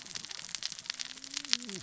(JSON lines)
{"label": "biophony, cascading saw", "recorder": "SoundTrap 600 or HydroMoth"}